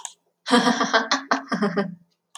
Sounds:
Laughter